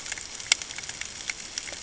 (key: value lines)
label: ambient
recorder: HydroMoth